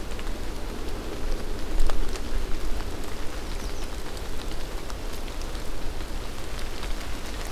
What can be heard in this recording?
American Redstart